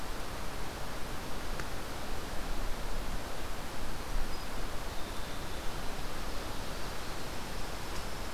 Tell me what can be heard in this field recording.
Winter Wren